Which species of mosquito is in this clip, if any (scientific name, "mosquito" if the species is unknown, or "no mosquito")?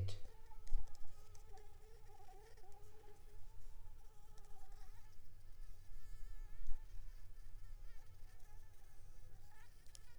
Anopheles squamosus